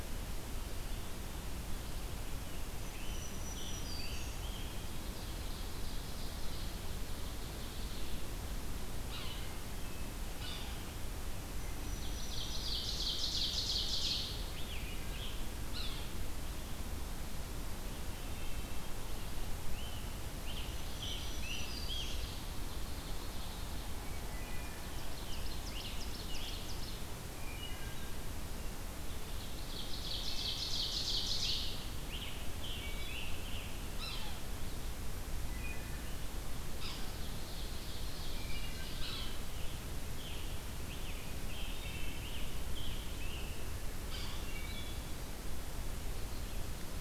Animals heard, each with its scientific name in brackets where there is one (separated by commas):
Yellow-bellied Sapsucker (Sphyrapicus varius), Wood Thrush (Hylocichla mustelina), Ovenbird (Seiurus aurocapilla), Scarlet Tanager (Piranga olivacea), Black-throated Green Warbler (Setophaga virens)